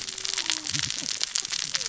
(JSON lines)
{"label": "biophony, cascading saw", "recorder": "SoundTrap 600 or HydroMoth"}